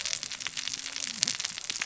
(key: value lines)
label: biophony, cascading saw
recorder: SoundTrap 600 or HydroMoth